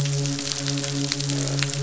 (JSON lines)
{"label": "biophony, croak", "recorder": "SoundTrap 500"}
{"label": "biophony, midshipman", "recorder": "SoundTrap 500"}